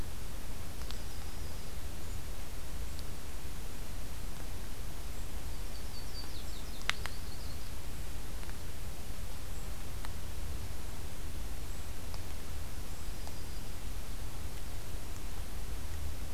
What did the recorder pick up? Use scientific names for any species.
Setophaga coronata